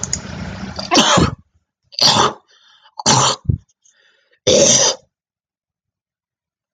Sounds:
Throat clearing